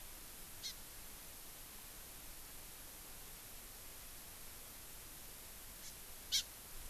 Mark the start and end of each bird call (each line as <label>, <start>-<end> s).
Hawaii Amakihi (Chlorodrepanis virens), 0.6-0.7 s
Hawaii Amakihi (Chlorodrepanis virens), 5.8-5.9 s
Hawaii Amakihi (Chlorodrepanis virens), 6.3-6.4 s